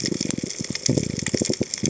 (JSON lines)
{"label": "biophony", "recorder": "HydroMoth"}